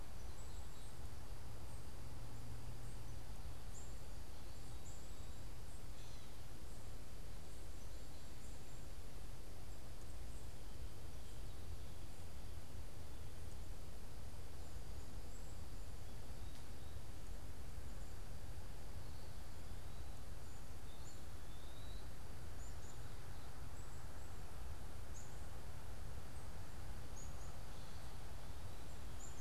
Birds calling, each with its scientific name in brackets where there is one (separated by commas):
Black-capped Chickadee (Poecile atricapillus), Eastern Wood-Pewee (Contopus virens)